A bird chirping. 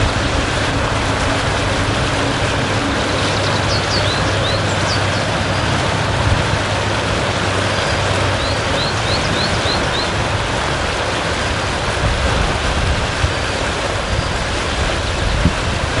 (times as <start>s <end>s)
3.8s 5.9s, 8.4s 10.3s, 14.1s 15.8s